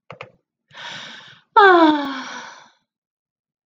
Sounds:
Sigh